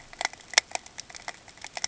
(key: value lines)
label: ambient
recorder: HydroMoth